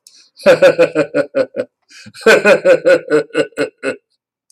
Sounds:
Laughter